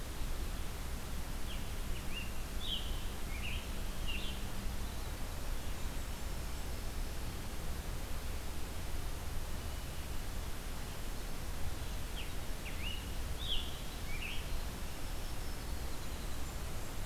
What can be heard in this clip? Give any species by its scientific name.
Piranga olivacea, Troglodytes hiemalis, Setophaga fusca